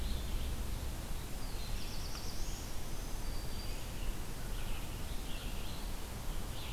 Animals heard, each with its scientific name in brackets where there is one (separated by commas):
Black-throated Blue Warbler (Setophaga caerulescens), Red-eyed Vireo (Vireo olivaceus), Black-throated Green Warbler (Setophaga virens)